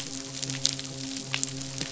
{"label": "biophony, midshipman", "recorder": "SoundTrap 500"}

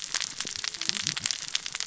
{"label": "biophony, cascading saw", "recorder": "SoundTrap 600 or HydroMoth"}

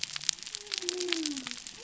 {"label": "biophony", "recorder": "SoundTrap 300"}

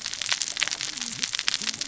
{"label": "biophony, cascading saw", "recorder": "SoundTrap 600 or HydroMoth"}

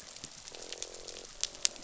{"label": "biophony, croak", "recorder": "SoundTrap 500"}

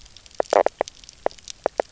{"label": "biophony, knock croak", "recorder": "SoundTrap 300"}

